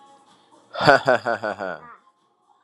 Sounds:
Laughter